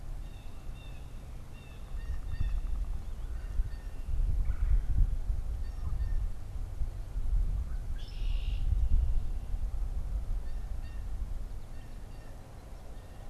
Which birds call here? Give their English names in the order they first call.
Blue Jay, Red-bellied Woodpecker, Red-winged Blackbird